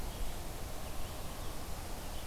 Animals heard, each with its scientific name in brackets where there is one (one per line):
Red-eyed Vireo (Vireo olivaceus)